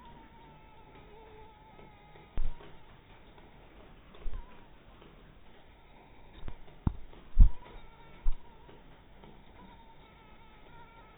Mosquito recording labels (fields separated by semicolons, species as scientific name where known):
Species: mosquito; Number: one; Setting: cup